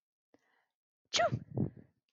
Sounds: Sneeze